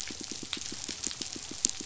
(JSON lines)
{"label": "biophony, pulse", "recorder": "SoundTrap 500"}